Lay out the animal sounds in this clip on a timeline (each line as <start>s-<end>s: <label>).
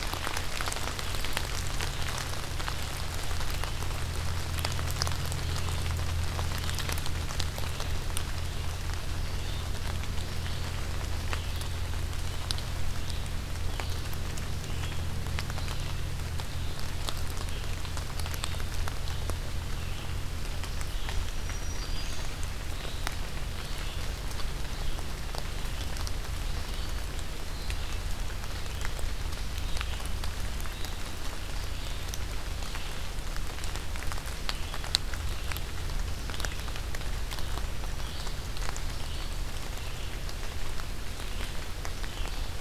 0.0s-27.9s: Red-eyed Vireo (Vireo olivaceus)
21.2s-22.3s: Black-throated Green Warbler (Setophaga virens)
28.4s-42.6s: Red-eyed Vireo (Vireo olivaceus)